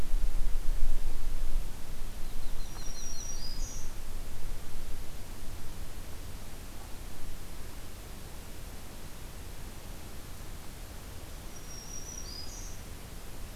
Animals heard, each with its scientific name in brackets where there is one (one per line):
Yellow-rumped Warbler (Setophaga coronata)
Black-throated Green Warbler (Setophaga virens)